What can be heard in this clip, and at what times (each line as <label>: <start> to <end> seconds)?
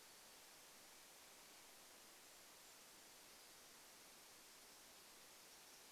Golden-crowned Kinglet song: 2 to 4 seconds